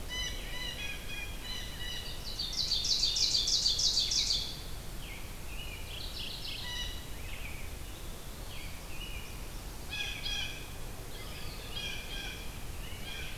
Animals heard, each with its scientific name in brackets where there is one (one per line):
American Robin (Turdus migratorius)
Blue Jay (Cyanocitta cristata)
Mourning Warbler (Geothlypis philadelphia)
Eastern Wood-Pewee (Contopus virens)
Ovenbird (Seiurus aurocapilla)